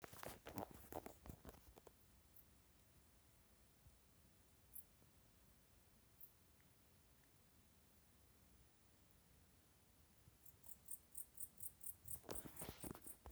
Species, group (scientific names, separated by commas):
Pholidoptera aptera, Orthoptera